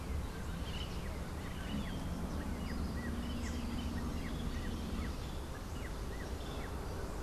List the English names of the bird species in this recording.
Rufous-naped Wren